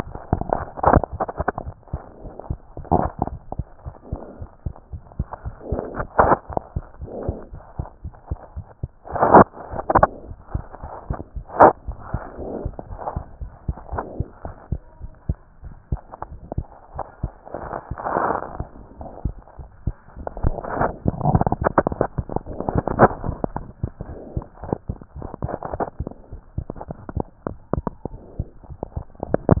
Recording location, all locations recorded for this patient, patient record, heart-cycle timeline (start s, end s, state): tricuspid valve (TV)
pulmonary valve (PV)+tricuspid valve (TV)+mitral valve (MV)
#Age: Child
#Sex: Male
#Height: 89.0 cm
#Weight: 13.4 kg
#Pregnancy status: False
#Murmur: Unknown
#Murmur locations: nan
#Most audible location: nan
#Systolic murmur timing: nan
#Systolic murmur shape: nan
#Systolic murmur grading: nan
#Systolic murmur pitch: nan
#Systolic murmur quality: nan
#Diastolic murmur timing: nan
#Diastolic murmur shape: nan
#Diastolic murmur grading: nan
#Diastolic murmur pitch: nan
#Diastolic murmur quality: nan
#Outcome: Normal
#Campaign: 2015 screening campaign
0.00	4.10	unannotated
4.10	4.24	S1
4.24	4.39	systole
4.39	4.48	S2
4.48	4.64	diastole
4.64	4.76	S1
4.76	4.91	systole
4.91	5.02	S2
5.02	5.18	diastole
5.18	5.28	S1
5.28	5.44	systole
5.44	5.54	S2
5.54	5.70	diastole
5.70	5.84	S1
5.84	5.98	systole
5.98	6.08	S2
6.08	6.68	unannotated
6.68	6.84	S1
6.84	7.00	systole
7.00	7.12	S2
7.12	7.26	diastole
7.26	7.36	S1
7.36	7.52	systole
7.52	7.62	S2
7.62	7.78	diastole
7.78	7.88	S1
7.88	8.04	systole
8.04	8.14	S2
8.14	8.30	diastole
8.30	8.40	S1
8.40	8.56	systole
8.56	8.66	S2
8.66	8.82	diastole
8.82	8.92	S1
8.92	10.50	unannotated
10.50	10.64	S1
10.64	10.82	systole
10.82	10.90	S2
10.90	11.06	diastole
11.06	11.18	S1
11.18	11.36	systole
11.36	11.46	S2
11.46	29.60	unannotated